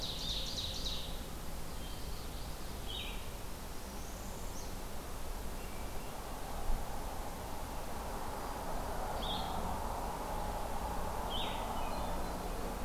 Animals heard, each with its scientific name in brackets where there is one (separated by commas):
Hermit Thrush (Catharus guttatus), Common Yellowthroat (Geothlypis trichas), Northern Parula (Setophaga americana), Blue-headed Vireo (Vireo solitarius), Ovenbird (Seiurus aurocapilla)